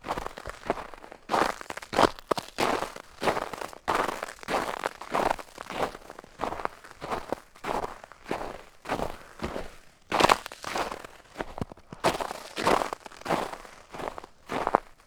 Is more than one person walking?
no